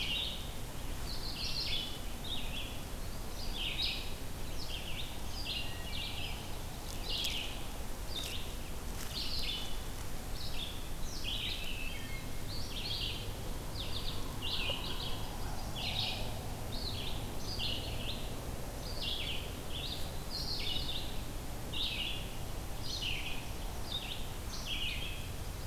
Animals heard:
Wood Thrush (Hylocichla mustelina), Red-eyed Vireo (Vireo olivaceus), Chestnut-sided Warbler (Setophaga pensylvanica)

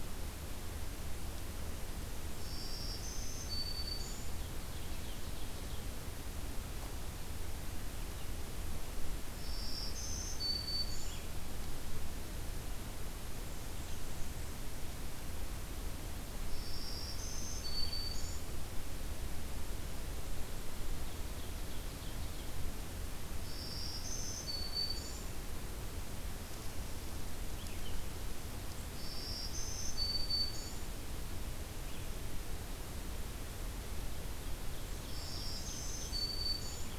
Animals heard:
Black-throated Green Warbler (Setophaga virens), Blackburnian Warbler (Setophaga fusca), Ovenbird (Seiurus aurocapilla)

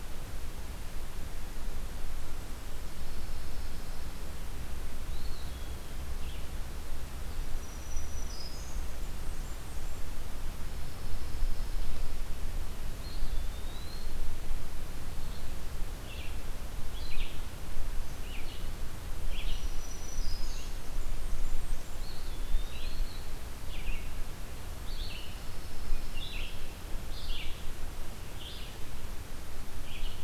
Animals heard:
Eastern Wood-Pewee (Contopus virens), Blackburnian Warbler (Setophaga fusca), Pine Warbler (Setophaga pinus), Black-throated Green Warbler (Setophaga virens), Red-eyed Vireo (Vireo olivaceus)

